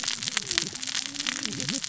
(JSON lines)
{"label": "biophony, cascading saw", "recorder": "SoundTrap 600 or HydroMoth"}